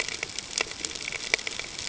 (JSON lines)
{"label": "ambient", "recorder": "HydroMoth"}